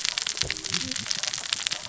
{"label": "biophony, cascading saw", "recorder": "SoundTrap 600 or HydroMoth"}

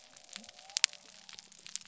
{"label": "biophony", "recorder": "SoundTrap 300"}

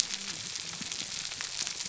{"label": "biophony, whup", "recorder": "SoundTrap 300"}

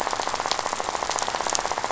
{"label": "biophony, rattle", "recorder": "SoundTrap 500"}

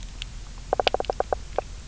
{"label": "biophony, knock", "recorder": "SoundTrap 300"}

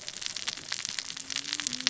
{"label": "biophony, cascading saw", "recorder": "SoundTrap 600 or HydroMoth"}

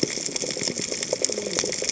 {"label": "biophony, cascading saw", "recorder": "HydroMoth"}
{"label": "biophony", "recorder": "HydroMoth"}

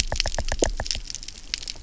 {"label": "biophony, knock", "recorder": "SoundTrap 300"}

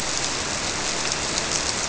{"label": "biophony", "recorder": "SoundTrap 300"}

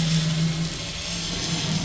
{"label": "anthrophony, boat engine", "recorder": "SoundTrap 500"}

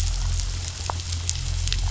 {"label": "anthrophony, boat engine", "recorder": "SoundTrap 500"}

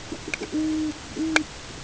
{"label": "ambient", "recorder": "HydroMoth"}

